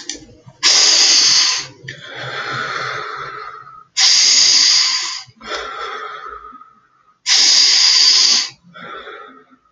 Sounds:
Sigh